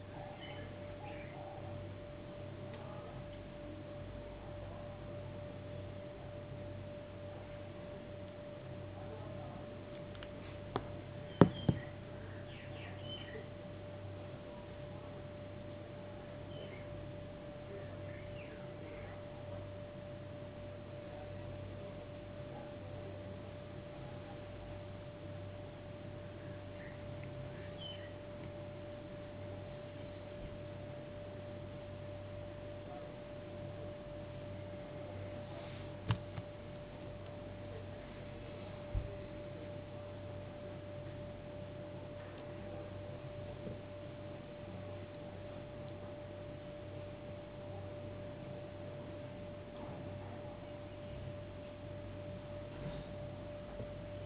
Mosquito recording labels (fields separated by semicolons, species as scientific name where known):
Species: no mosquito; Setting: insect culture